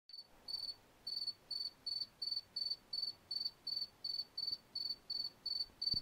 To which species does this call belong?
Gryllus bimaculatus